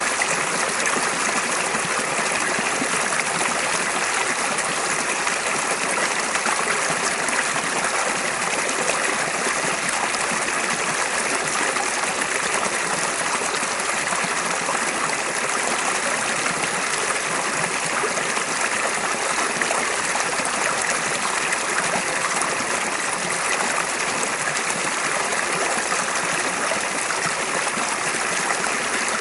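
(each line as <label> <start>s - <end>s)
The continuous rush of a waterfall blends with the gentle flow of a nearby stream, creating a rich and immersive natural water soundscape. 0.1s - 29.2s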